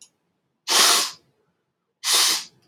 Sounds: Sniff